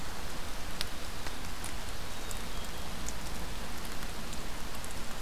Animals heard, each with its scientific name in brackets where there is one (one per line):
Black-capped Chickadee (Poecile atricapillus)